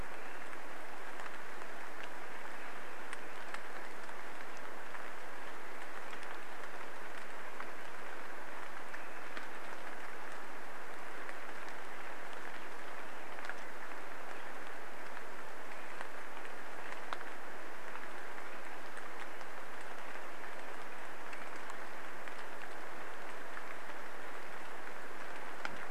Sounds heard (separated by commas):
Swainson's Thrush song, Swainson's Thrush call, American Robin song, rain